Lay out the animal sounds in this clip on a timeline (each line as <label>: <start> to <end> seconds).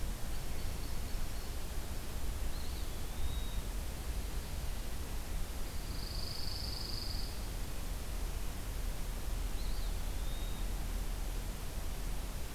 Ovenbird (Seiurus aurocapilla): 0.0 to 1.5 seconds
Eastern Wood-Pewee (Contopus virens): 2.3 to 3.6 seconds
Pine Warbler (Setophaga pinus): 5.7 to 7.4 seconds
Eastern Wood-Pewee (Contopus virens): 9.4 to 10.7 seconds